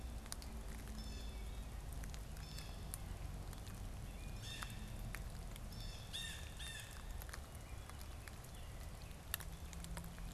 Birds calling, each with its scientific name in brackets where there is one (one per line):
Blue Jay (Cyanocitta cristata)